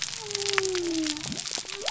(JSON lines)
{"label": "biophony", "recorder": "SoundTrap 300"}